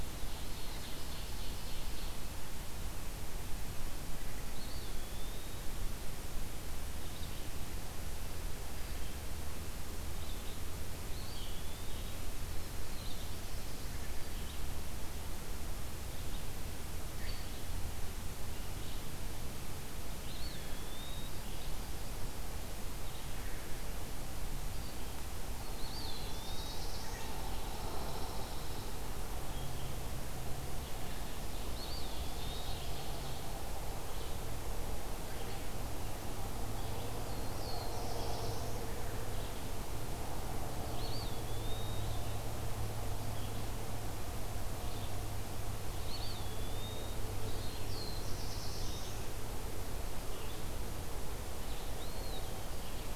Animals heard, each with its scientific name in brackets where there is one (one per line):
Ovenbird (Seiurus aurocapilla)
Black-throated Blue Warbler (Setophaga caerulescens)
Eastern Wood-Pewee (Contopus virens)
Pine Warbler (Setophaga pinus)
Red-eyed Vireo (Vireo olivaceus)